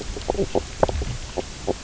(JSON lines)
{"label": "biophony, knock croak", "recorder": "SoundTrap 300"}